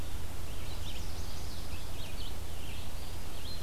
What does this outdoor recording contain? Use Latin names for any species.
Vireo olivaceus, Setophaga pensylvanica